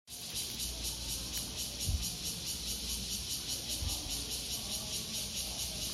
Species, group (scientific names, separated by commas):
Cryptotympana takasagona, Cicadidae